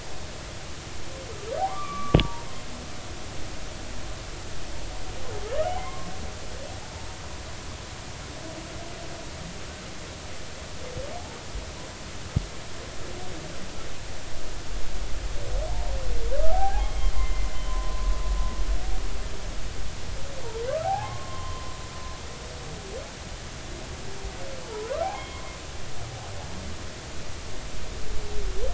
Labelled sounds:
1.6	2.5	humpback whale, 0.90 to 2.5 kHz
5.7	7.1	humpback whale, 0.80 to 1.2 kHz
16.5	18.1	humpback whale, 0.80 to 3.3 kHz
20.8	21.7	humpback whale, 0.80 to 3.2 kHz
24.7	25.4	humpback whale, 0.80 to 3.4 kHz

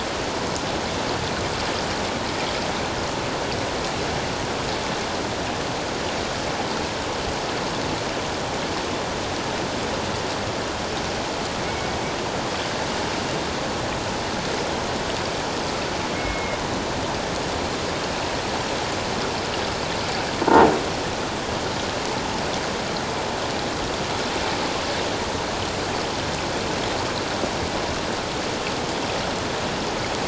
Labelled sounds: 11.7	12.0	killer whale, 2.1 to 2.3 kHz
16.1	16.6	killer whale, 2.0 to 2.2 kHz

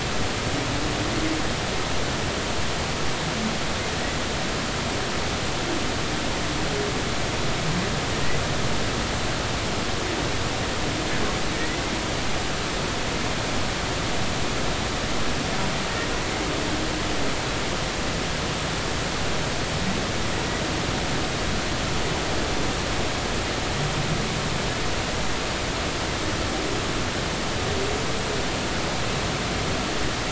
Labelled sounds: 11.5	11.8	humpback whale, 1.8 to 2.1 kHz

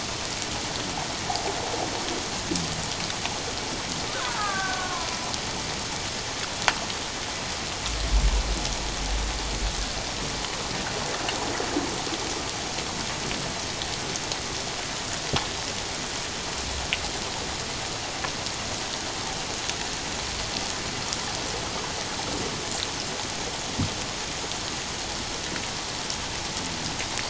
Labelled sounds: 4.1	5.1	killer whale, Bigg's (transient), 0.78 to 1.8 kHz

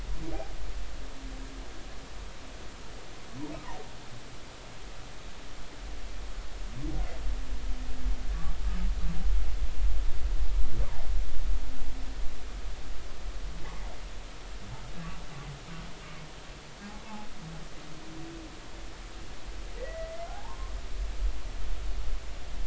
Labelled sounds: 10.8	11.1	humpback whale, 0.80 to 1.3 kHz
17.0	17.3	humpback whale, 0.80 to 0.99 kHz
19.8	20.8	humpback whale, 0.80 to 2.1 kHz

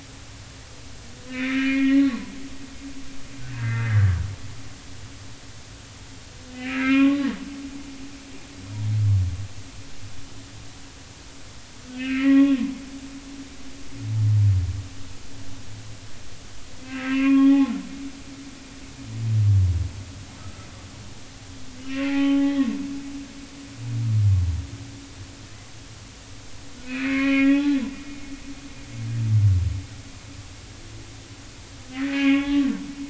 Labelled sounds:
1.3	2.3	humpback whale, 0.93 to 2.7 kHz
3.6	4.1	humpback whale, 1.3 to 2.1 kHz
6.5	7.3	humpback whale, 1.0 to 3.4 kHz
11.9	12.6	humpback whale, 0.80 to 3.4 kHz
13.3	13.6	humpback whale, 1.3 to 1.4 kHz
16.8	17.7	humpback whale, 0.80 to 3.3 kHz
20.4	20.7	humpback whale, 1.2 to 1.4 kHz
21.8	22.7	humpback whale, 0.80 to 3.1 kHz
26.8	27.8	humpback whale, 0.80 to 4.4 kHz
31.9	32.6	humpback whale, 0.80 to 3.5 kHz

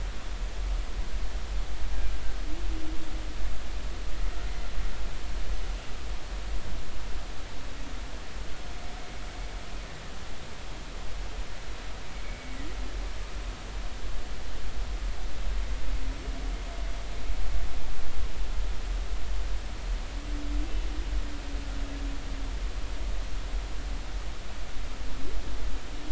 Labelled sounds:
12.2	12.6	humpback whale, 2.2 to 2.3 kHz

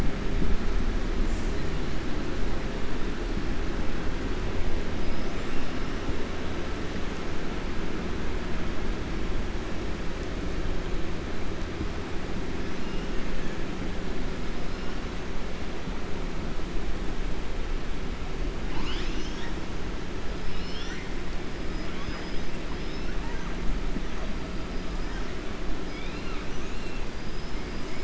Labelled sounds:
18.6	19.5	killer whale, 0.87 to 7.0 kHz
20.4	21.1	killer whale, 1.4 to 5.9 kHz
21.8	22.5	killer whale, 1.1 to 6.0 kHz

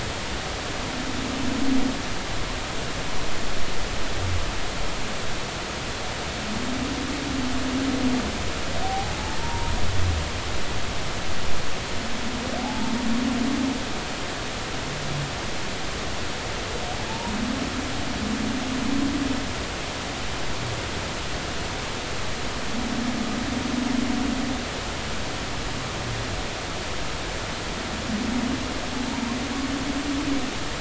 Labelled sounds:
8.8	9.7	humpback whale, 0.80 to 1.1 kHz
12.6	12.9	humpback whale, 0.80 to 0.96 kHz
17.1	17.3	humpback whale, 0.83 to 1.0 kHz

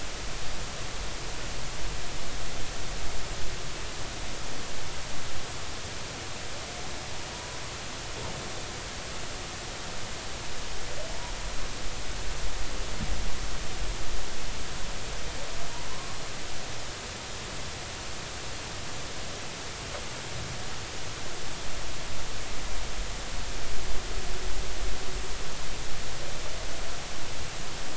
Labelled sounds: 7.3	7.6	humpback whale, 0.93 to 1.0 kHz
11.1	11.3	humpback whale, 0.80 to 1.0 kHz
15.9	16.2	humpback whale, 0.96 to 1.2 kHz

